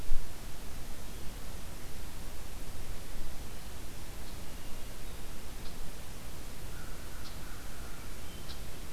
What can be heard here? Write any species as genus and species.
Catharus guttatus, unidentified call, Corvus brachyrhynchos